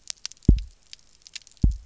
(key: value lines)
label: biophony, double pulse
recorder: SoundTrap 300